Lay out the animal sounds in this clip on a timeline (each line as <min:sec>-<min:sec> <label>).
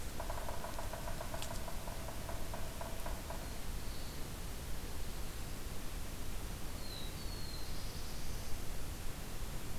0:00.0-0:03.6 Yellow-bellied Sapsucker (Sphyrapicus varius)
0:06.5-0:08.8 Black-throated Blue Warbler (Setophaga caerulescens)